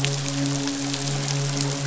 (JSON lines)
{"label": "biophony, midshipman", "recorder": "SoundTrap 500"}